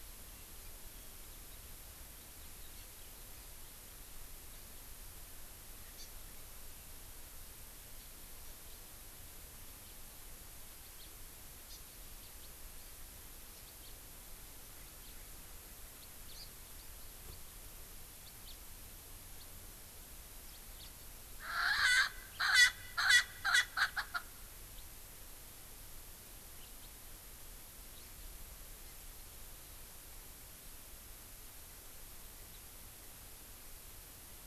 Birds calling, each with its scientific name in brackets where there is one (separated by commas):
Erckel's Francolin (Pternistis erckelii), House Finch (Haemorhous mexicanus), Hawaii Amakihi (Chlorodrepanis virens)